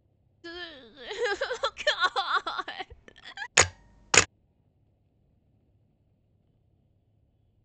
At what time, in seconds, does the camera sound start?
3.5 s